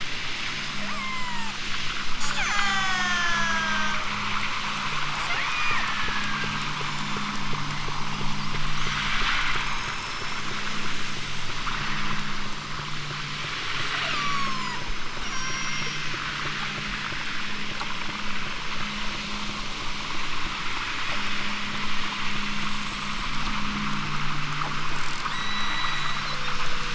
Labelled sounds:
0.9	1.6	killer whale, southern Alaska resident, 0.50 to 8.0 kHz
2.2	4.0	killer whale, southern Alaska resident, 0.41 to 8.0 kHz
5.4	7.4	killer whale, southern Alaska resident, 0.87 to 8.0 kHz
9.6	10.5	killer whale, southern Alaska resident, 3.7 to 7.2 kHz
14.0	14.8	killer whale, southern Alaska resident, 0.55 to 8.0 kHz
15.2	16.3	killer whale, southern Alaska resident, 4.1 to 7.3 kHz
25.3	26.3	killer whale, southern Alaska resident, 1.4 to 8.0 kHz

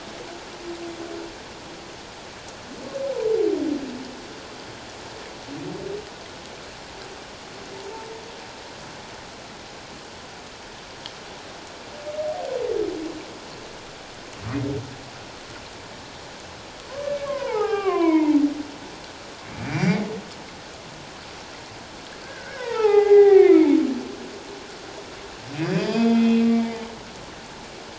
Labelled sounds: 17.2	18.4	humpback whale, 0.78 to 3.2 kHz
19.7	20.0	humpback whale, 1.8 to 5.9 kHz
22.2	23.8	humpback whale, 0.78 to 3.9 kHz
25.6	26.5	humpback whale, 2.3 to 5.1 kHz

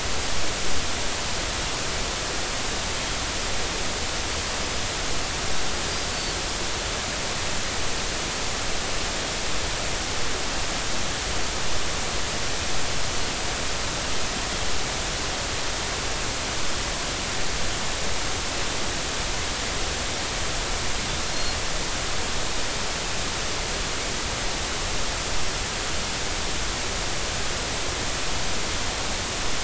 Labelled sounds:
6.1	6.4	Pacific white-sided dolphin, 4.4 to 4.6 kHz
21.3	21.6	Pacific white-sided dolphin, 4.1 to 4.3 kHz

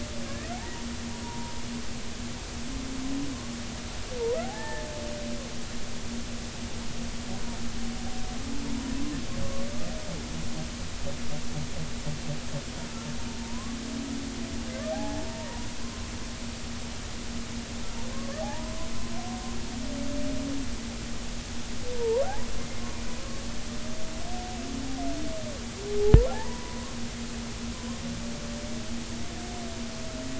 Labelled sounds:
0.2	0.8	humpback whale, 0.80 to 2.1 kHz
1.2	1.6	humpback whale, 0.86 to 1.0 kHz
4.4	4.9	humpback whale, 0.80 to 1.9 kHz
13.4	13.8	humpback whale, 0.86 to 1.2 kHz
14.9	15.7	humpback whale, 0.80 to 1.8 kHz
18.1	18.9	humpback whale, 0.80 to 1.3 kHz
21.9	22.3	humpback whale, 0.86 to 1.2 kHz
22.6	22.8	humpback whale, 2.0 to 2.1 kHz
26.3	26.9	humpback whale, 0.80 to 1.1 kHz

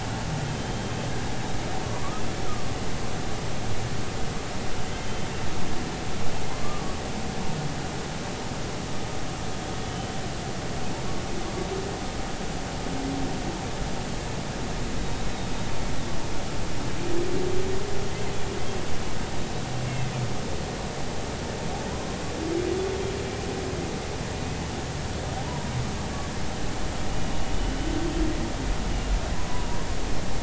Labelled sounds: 0.4	0.9	humpback whale, 3.1 to 3.2 kHz
2.4	2.7	humpback whale, 1.1 to 1.4 kHz
5.0	5.3	humpback whale, 3.0 to 3.2 kHz
6.6	7.0	humpback whale, 1.1 to 1.2 kHz
9.8	10.1	humpback whale, 3.0 to 3.1 kHz
19.8	20.1	humpback whale, 2.5 to 2.8 kHz
25.4	25.7	humpback whale, 0.80 to 1.0 kHz
28.0	28.3	humpback whale, 3.0 to 3.4 kHz

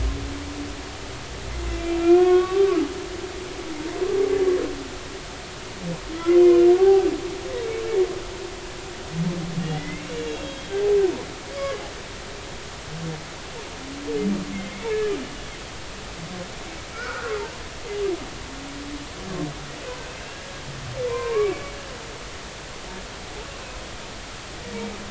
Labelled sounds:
1.7	2.8	humpback whale, 0.99 to 3.4 kHz
6.8	7.1	humpback whale, 0.80 to 0.86 kHz
9.6	10.7	humpback whale, 1.8 to 3.4 kHz
11.5	11.8	humpback whale, 1.1 to 1.2 kHz
14.5	15.0	humpback whale, 2.0 to 2.4 kHz
16.9	17.3	humpback whale, 1.2 to 1.7 kHz
20.2	20.5	humpback whale, 1.5 to 1.8 kHz
21.1	21.8	humpback whale, 0.90 to 2.4 kHz

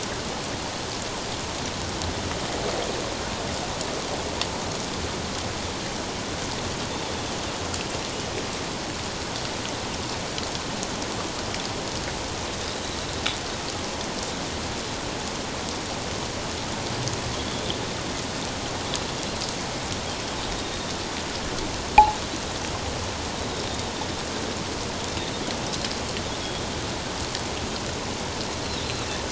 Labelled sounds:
17.4	17.8	Pacific white-sided dolphin, 3.0 to 3.6 kHz

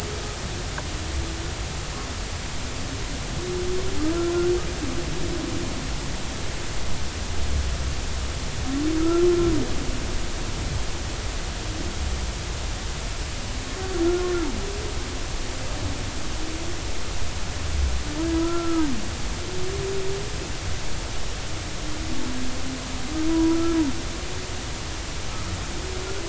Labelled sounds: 10.0	10.3	humpback whale, 1.2 to 1.4 kHz
18.3	18.9	humpback whale, 0.96 to 1.4 kHz
23.3	23.8	humpback whale, 0.93 to 1.4 kHz

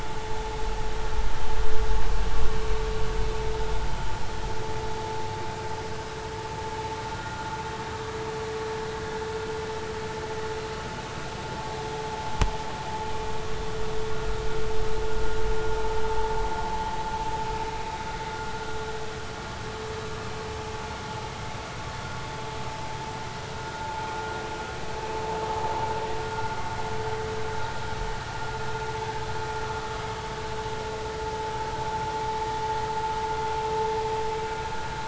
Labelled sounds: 7.1	7.5	vessel noise, 1.3 to 1.5 kHz
23.8	24.1	vessel noise, 0.83 to 0.93 kHz

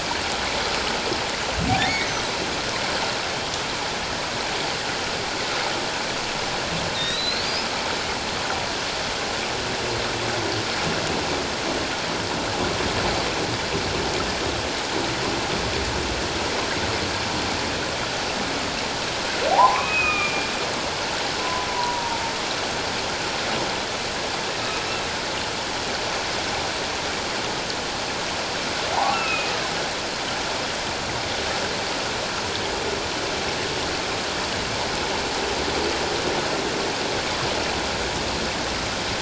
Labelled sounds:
1.9	2.1	humpback whale, 1.8 to 2.3 kHz
6.9	7.7	humpback whale, 3.6 to 5.2 kHz
19.5	20.5	humpback whale, 0.78 to 2.6 kHz
21.4	22.2	humpback whale, 0.88 to 1.1 kHz
28.9	29.5	humpback whale, 0.78 to 2.8 kHz

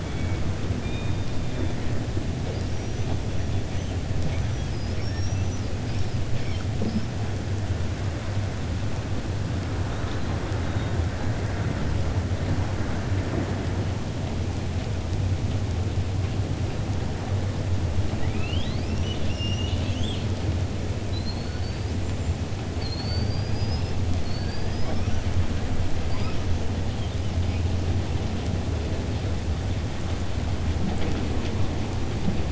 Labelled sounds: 18.1	20.3	killer whale, 1.6 to 6.5 kHz
21.0	21.8	killer whale, 3.9 to 4.7 kHz
22.7	25.2	killer whale, 4.2 to 6.0 kHz

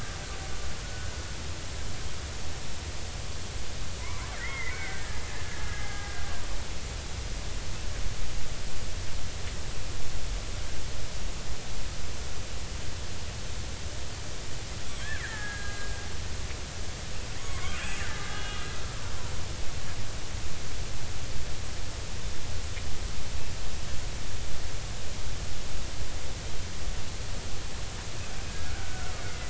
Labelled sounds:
0.8	1.1	killer whale, Bigg's (transient), 1.4 to 1.5 kHz
4.0	6.2	killer whale, Bigg's (transient), 0.80 to 2.3 kHz
15.2	15.9	killer whale, Bigg's (transient), 1.2 to 2.1 kHz
17.4	17.8	killer whale, Bigg's (transient), 0.99 to 2.3 kHz
18.1	19.0	killer whale, Bigg's (transient), 1.2 to 3.9 kHz
28.5	29.4	killer whale, Bigg's (transient), 1.2 to 2.2 kHz

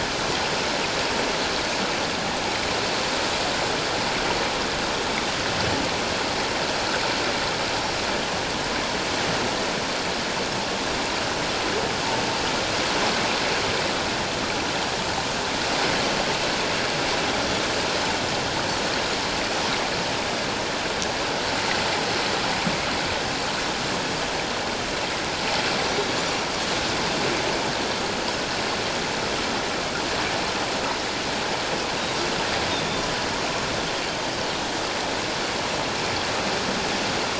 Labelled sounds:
26.2	26.5	Pacific white-sided dolphin, 5.6 to 6.0 kHz

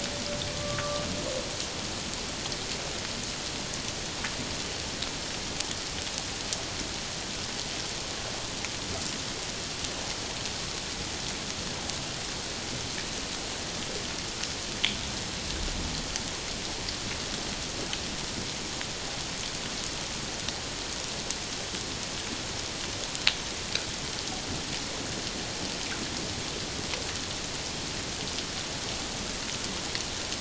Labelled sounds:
0.5	1.1	humpback whale, 1.1 to 1.2 kHz

